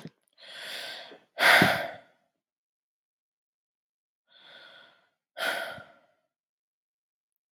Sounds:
Sigh